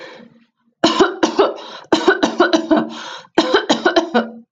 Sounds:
Cough